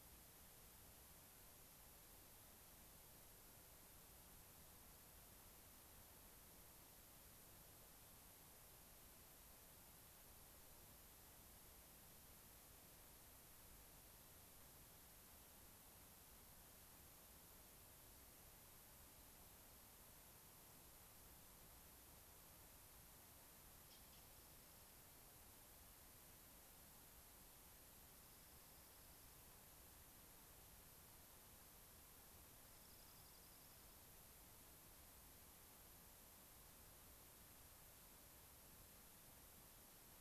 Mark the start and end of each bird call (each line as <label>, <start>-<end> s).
Dark-eyed Junco (Junco hyemalis), 24.1-25.0 s
Dark-eyed Junco (Junco hyemalis), 28.1-29.4 s
Dark-eyed Junco (Junco hyemalis), 32.6-34.1 s